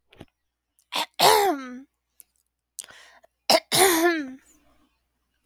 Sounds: Throat clearing